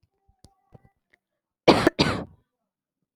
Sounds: Cough